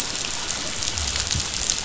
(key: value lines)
label: biophony
recorder: SoundTrap 500